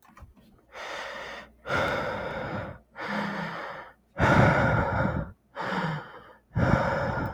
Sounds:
Sigh